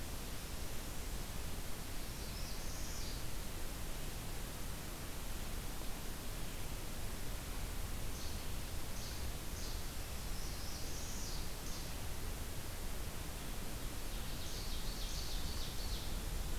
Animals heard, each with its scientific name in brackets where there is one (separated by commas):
Ovenbird (Seiurus aurocapilla), Northern Parula (Setophaga americana), Least Flycatcher (Empidonax minimus)